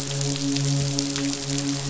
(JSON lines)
{"label": "biophony, midshipman", "recorder": "SoundTrap 500"}